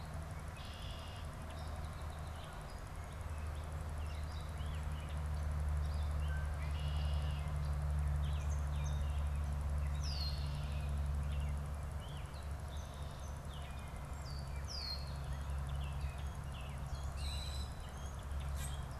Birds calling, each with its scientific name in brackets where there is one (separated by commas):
Red-winged Blackbird (Agelaius phoeniceus), Gray Catbird (Dumetella carolinensis), Common Grackle (Quiscalus quiscula)